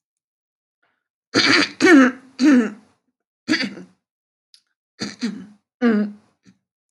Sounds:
Throat clearing